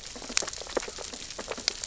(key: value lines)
label: biophony, sea urchins (Echinidae)
recorder: SoundTrap 600 or HydroMoth